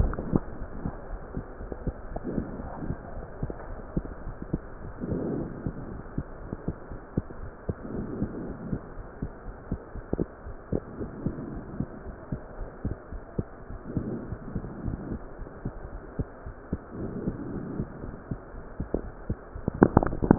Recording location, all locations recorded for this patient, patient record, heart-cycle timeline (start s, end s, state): pulmonary valve (PV)
aortic valve (AV)+pulmonary valve (PV)+tricuspid valve (TV)+mitral valve (MV)
#Age: Child
#Sex: Female
#Height: 136.0 cm
#Weight: 33.9 kg
#Pregnancy status: False
#Murmur: Absent
#Murmur locations: nan
#Most audible location: nan
#Systolic murmur timing: nan
#Systolic murmur shape: nan
#Systolic murmur grading: nan
#Systolic murmur pitch: nan
#Systolic murmur quality: nan
#Diastolic murmur timing: nan
#Diastolic murmur shape: nan
#Diastolic murmur grading: nan
#Diastolic murmur pitch: nan
#Diastolic murmur quality: nan
#Outcome: Normal
#Campaign: 2015 screening campaign
0.00	2.67	unannotated
2.67	2.72	S1
2.72	2.82	systole
2.82	2.96	S2
2.96	3.14	diastole
3.14	3.24	S1
3.24	3.40	systole
3.40	3.54	S2
3.54	3.66	diastole
3.66	3.76	S1
3.76	3.92	systole
3.92	4.04	S2
4.04	4.22	diastole
4.22	4.36	S1
4.36	4.52	systole
4.52	4.64	S2
4.64	4.84	diastole
4.84	4.94	S1
4.94	5.08	systole
5.08	5.22	S2
5.22	5.36	diastole
5.36	5.52	S1
5.52	5.64	systole
5.64	5.74	S2
5.74	5.90	diastole
5.90	6.04	S1
6.04	6.16	systole
6.16	6.26	S2
6.26	6.42	diastole
6.42	6.50	S1
6.50	6.66	systole
6.66	6.76	S2
6.76	6.90	diastole
6.90	7.00	S1
7.00	7.16	systole
7.16	7.26	S2
7.26	7.40	diastole
7.40	7.52	S1
7.52	7.68	systole
7.68	7.76	S2
7.76	7.94	diastole
7.94	8.08	S1
8.08	8.18	systole
8.18	8.30	S2
8.30	8.42	diastole
8.42	8.56	S1
8.56	8.66	systole
8.66	8.80	S2
8.80	8.98	diastole
8.98	9.06	S1
9.06	9.18	systole
9.18	9.32	S2
9.32	9.48	diastole
9.48	9.56	S1
9.56	9.70	systole
9.70	9.80	S2
9.80	9.96	diastole
9.96	10.04	S1
10.04	10.20	systole
10.20	10.28	S2
10.28	10.46	diastole
10.46	10.56	S1
10.56	10.72	systole
10.72	10.82	S2
10.82	10.98	diastole
10.98	11.12	S1
11.12	11.24	systole
11.24	11.34	S2
11.34	11.52	diastole
11.52	11.66	S1
11.66	11.78	systole
11.78	11.90	S2
11.90	12.08	diastole
12.08	12.16	S1
12.16	12.30	systole
12.30	12.42	S2
12.42	12.58	diastole
12.58	12.68	S1
12.68	12.86	systole
12.86	12.98	S2
12.98	13.12	diastole
13.12	13.22	S1
13.22	13.36	systole
13.36	13.50	S2
13.50	13.70	diastole
13.70	13.82	S1
13.82	13.94	systole
13.94	14.10	S2
14.10	14.28	diastole
14.28	14.40	S1
14.40	14.54	systole
14.54	14.66	S2
14.66	14.84	diastole
14.84	20.38	unannotated